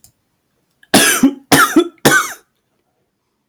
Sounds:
Cough